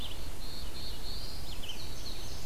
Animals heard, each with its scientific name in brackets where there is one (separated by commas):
Red-eyed Vireo (Vireo olivaceus), Indigo Bunting (Passerina cyanea), Black-throated Blue Warbler (Setophaga caerulescens)